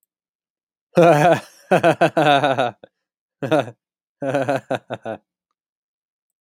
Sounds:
Laughter